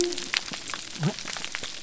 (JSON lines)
{"label": "biophony", "recorder": "SoundTrap 300"}